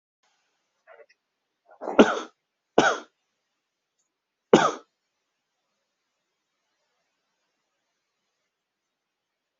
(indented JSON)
{
  "expert_labels": [
    {
      "quality": "good",
      "cough_type": "dry",
      "dyspnea": false,
      "wheezing": false,
      "stridor": false,
      "choking": false,
      "congestion": false,
      "nothing": true,
      "diagnosis": "upper respiratory tract infection",
      "severity": "mild"
    }
  ],
  "age": 38,
  "gender": "male",
  "respiratory_condition": false,
  "fever_muscle_pain": true,
  "status": "healthy"
}